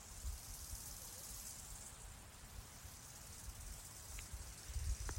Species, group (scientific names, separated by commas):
Chorthippus biguttulus, Orthoptera